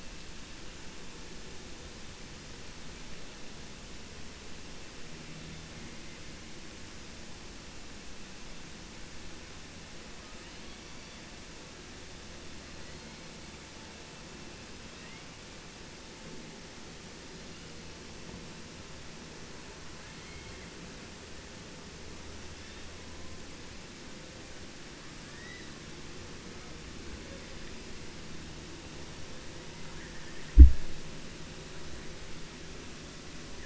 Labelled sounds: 20.0	20.7	killer whale, 1.1 to 4.1 kHz

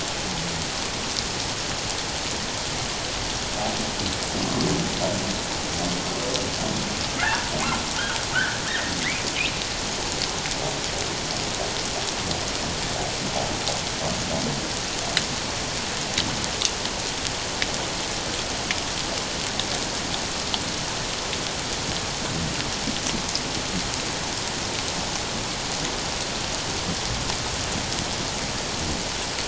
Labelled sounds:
7.1	7.5	humpback whale, 0.81 to 1.8 kHz
8.3	9.6	humpback whale, 1.2 to 2.8 kHz

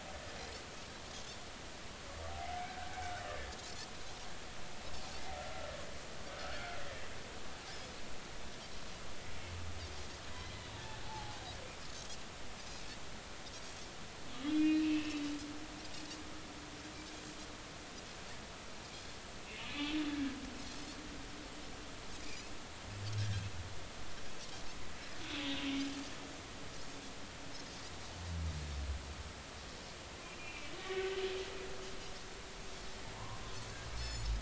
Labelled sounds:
5.4	6.6	humpback whale, 1.2 to 1.6 kHz
11.0	11.4	humpback whale, 0.80 to 0.93 kHz
14.5	15.2	humpback whale, 2.1 to 4.1 kHz
19.4	20.0	humpback whale, 2.5 to 2.8 kHz
23.2	23.5	humpback whale, 1.5 to 1.8 kHz
30.4	31.1	humpback whale, 1.8 to 2.8 kHz
33.9	34.3	Pacific white-sided dolphin, 4.2 to 7.9 kHz

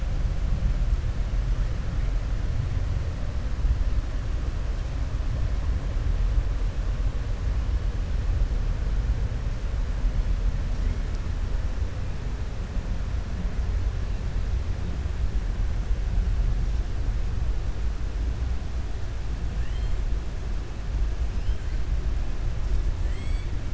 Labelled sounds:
23.0	23.5	killer whale, 1.8 to 7.9 kHz

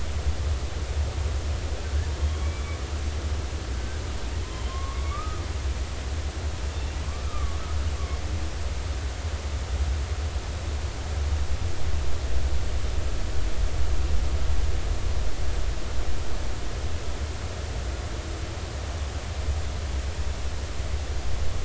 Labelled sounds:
2.2	2.8	humpback whale, 2.2 to 3.4 kHz
3.7	4.0	humpback whale, 1.5 to 1.7 kHz
4.5	5.4	humpback whale, 0.99 to 3.3 kHz
7.2	7.6	humpback whale, 1.1 to 1.4 kHz

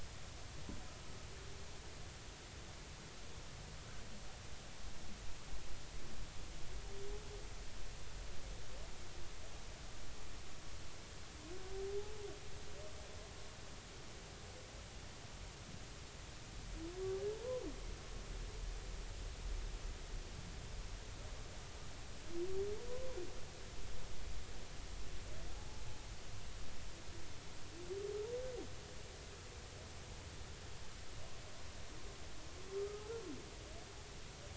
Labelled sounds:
25.6	25.8	humpback whale, 0.80 to 0.90 kHz
32.8	33.2	humpback whale, 1.2 to 1.4 kHz

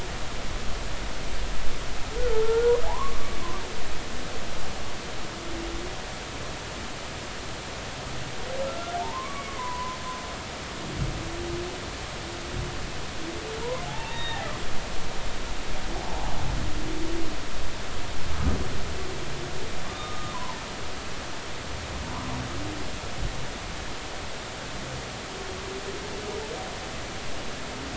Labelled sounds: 2.3	3.2	humpback whale, 0.80 to 1.5 kHz
8.7	10.0	humpback whale, 0.80 to 1.4 kHz
13.6	14.4	humpback whale, 0.80 to 3.8 kHz
18.3	18.6	humpback whale, 1.2 to 1.3 kHz
19.9	20.6	humpback whale, 0.86 to 1.3 kHz

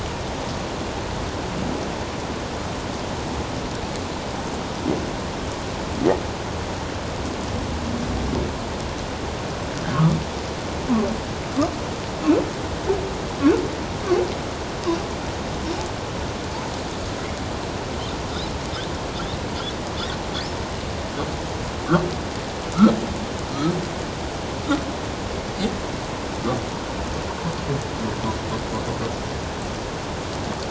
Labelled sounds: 9.9	10.2	humpback whale, 1.0 to 1.5 kHz

